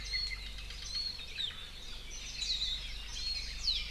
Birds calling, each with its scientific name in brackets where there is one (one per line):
Hawaii Akepa (Loxops coccineus)
Warbling White-eye (Zosterops japonicus)